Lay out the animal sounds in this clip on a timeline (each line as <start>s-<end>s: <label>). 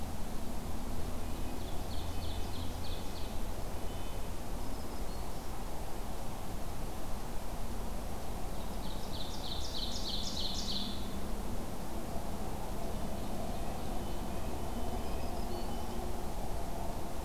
1.3s-3.3s: Ovenbird (Seiurus aurocapilla)
2.1s-4.4s: Red-breasted Nuthatch (Sitta canadensis)
4.5s-5.5s: Black-throated Green Warbler (Setophaga virens)
8.7s-11.1s: Ovenbird (Seiurus aurocapilla)
13.0s-14.6s: Ovenbird (Seiurus aurocapilla)
13.4s-16.0s: Red-breasted Nuthatch (Sitta canadensis)
14.9s-15.9s: Black-throated Green Warbler (Setophaga virens)